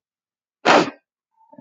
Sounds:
Sniff